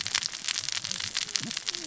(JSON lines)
{"label": "biophony, cascading saw", "recorder": "SoundTrap 600 or HydroMoth"}